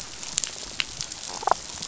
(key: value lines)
label: biophony, damselfish
recorder: SoundTrap 500